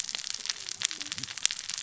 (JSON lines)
{"label": "biophony, cascading saw", "recorder": "SoundTrap 600 or HydroMoth"}